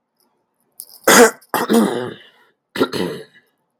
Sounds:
Throat clearing